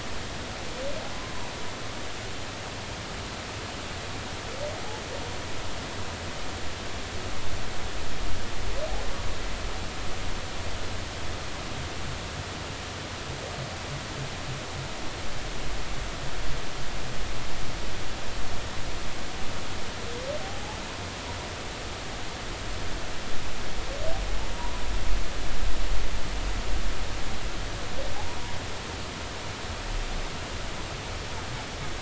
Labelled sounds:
1.1	1.5	humpback whale, 0.93 to 1.1 kHz
20.4	20.8	humpback whale, 0.80 to 0.90 kHz
24.5	24.8	humpback whale, 0.90 to 1.1 kHz

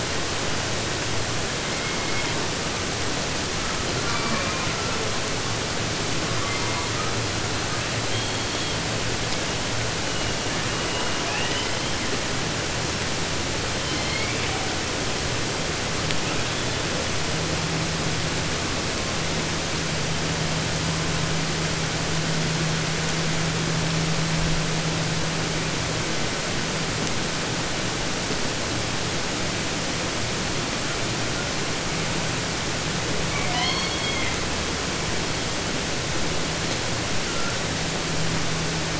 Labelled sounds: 1.5	2.5	killer whale, 0.14 to 6.2 kHz
3.5	5.2	killer whale, 0.18 to 5.6 kHz
6.2	7.1	killer whale, southern resident, 0.50 to 3.0 kHz
7.6	9.1	killer whale, 0.79 to 5.5 kHz
9.9	11.4	killer whale, 1.8 to 6.4 kHz
11.2	12.1	killer whale, southern resident, 0.50 to 5.7 kHz
13.7	14.9	killer whale, southern resident, J pod, call S01, 0.50 to 6.4 kHz
16.2	17.2	killer whale, 0.73 to 5.7 kHz
33.2	34.5	killer whale, southern resident, J pod, call S44, 0.50 to 7.1 kHz
37.2	37.6	killer whale, 0.99 to 2.0 kHz

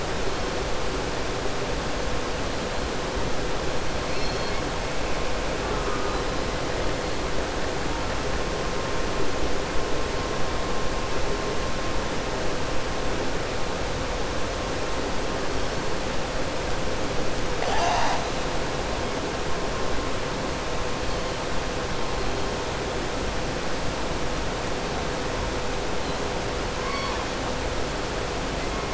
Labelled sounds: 4.0	4.6	killer whale, southern resident, 2.2 to 6.2 kHz
26.7	27.2	killer whale, southern resident, 1.0 to 4.5 kHz

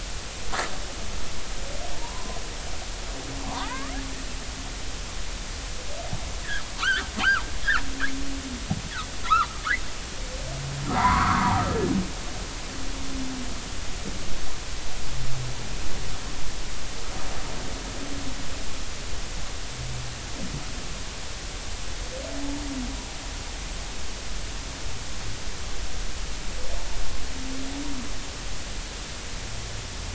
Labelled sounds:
1.9	2.4	humpback whale, 0.86 to 1.1 kHz
3.5	3.9	humpback whale, 0.80 to 1.8 kHz
6.8	7.1	humpback whale, 1.1 to 1.9 kHz
9.2	9.5	humpback whale, 0.90 to 1.5 kHz
10.9	11.7	humpback whale, 0.80 to 2.2 kHz

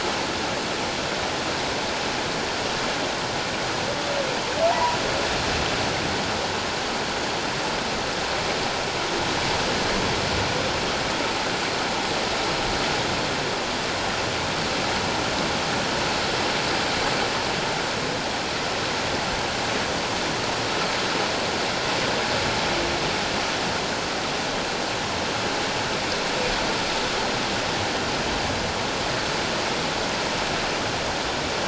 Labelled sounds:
4.7	5.0	humpback whale, 0.78 to 1.0 kHz

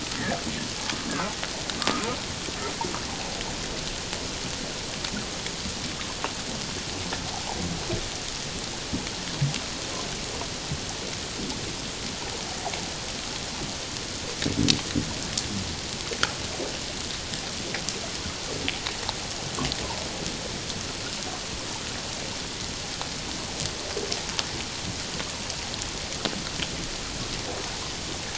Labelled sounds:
1.8	2.1	humpback whale, 1.1 to 1.4 kHz

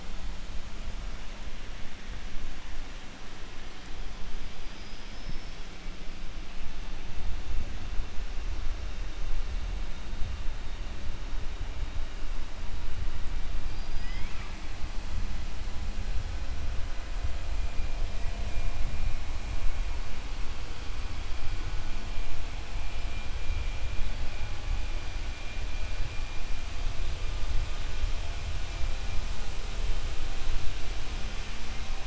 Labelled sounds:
4.5	5.6	killer whale, 3.9 to 5.5 kHz
13.6	14.6	killer whale, 1.0 to 5.3 kHz

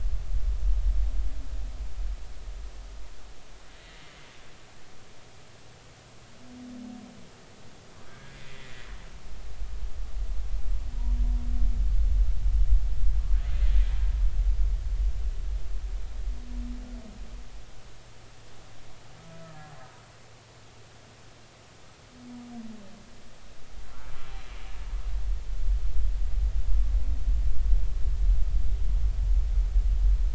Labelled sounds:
8.4	9.4	humpback whale, 1.5 to 2.0 kHz
19.4	19.7	humpback whale, 1.6 to 1.8 kHz

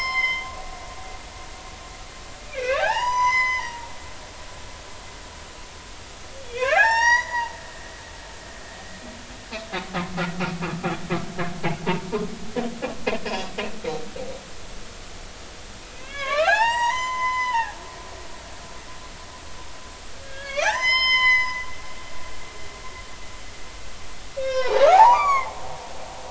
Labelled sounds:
2.5	3.9	humpback whale, 0.80 to 6.2 kHz
6.5	7.5	humpback whale, 0.80 to 6.8 kHz
13.2	13.5	humpback whale, 5.0 to 5.3 kHz
15.8	17.7	humpback whale, 0.80 to 6.8 kHz
20.2	21.7	humpback whale, 0.80 to 7.3 kHz
24.4	25.5	humpback whale, 0.80 to 7.1 kHz

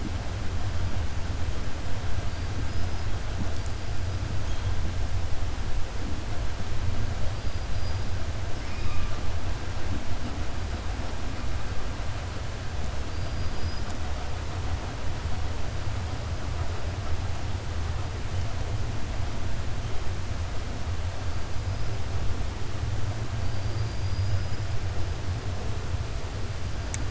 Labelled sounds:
8.5	9.1	killer whale, 1.2 to 3.5 kHz
13.0	14.0	killer whale, 4.4 to 8.0 kHz
23.4	24.5	killer whale, 4.6 to 5.0 kHz

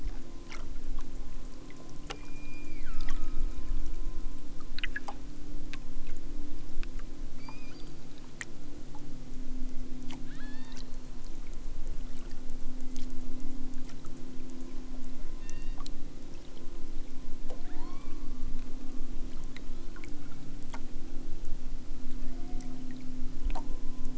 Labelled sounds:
2.1	3.5	killer whale, southern Alaska resident, 1.0 to 5.1 kHz
7.3	8.0	killer whale, southern Alaska resident, 1.3 to 6.5 kHz
10.3	10.8	killer whale, southern Alaska resident, 1.1 to 5.8 kHz
15.4	15.9	killer whale, southern Alaska resident, 1.3 to 6.1 kHz
17.6	18.2	killer whale, southern Alaska resident, 1.1 to 5.2 kHz
19.6	20.0	killer whale, southern Alaska resident, 0.96 to 4.5 kHz

